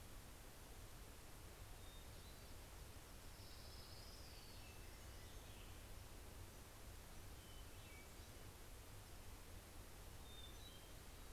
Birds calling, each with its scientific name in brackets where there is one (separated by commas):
Orange-crowned Warbler (Leiothlypis celata), Pacific-slope Flycatcher (Empidonax difficilis), Hermit Thrush (Catharus guttatus)